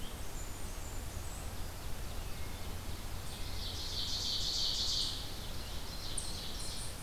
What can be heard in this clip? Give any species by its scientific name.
Setophaga fusca, Seiurus aurocapilla, unknown mammal